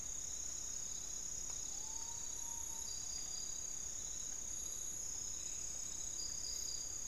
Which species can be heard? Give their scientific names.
Nyctibius griseus